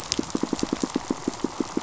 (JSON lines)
{"label": "biophony, pulse", "recorder": "SoundTrap 500"}